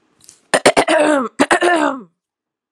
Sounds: Throat clearing